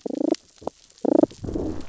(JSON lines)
{"label": "biophony, damselfish", "recorder": "SoundTrap 600 or HydroMoth"}
{"label": "biophony, growl", "recorder": "SoundTrap 600 or HydroMoth"}